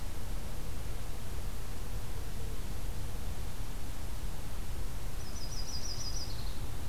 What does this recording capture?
Yellow-rumped Warbler